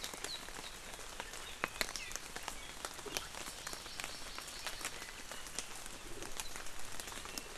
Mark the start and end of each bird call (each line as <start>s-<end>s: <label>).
3.6s-5.0s: Hawaii Amakihi (Chlorodrepanis virens)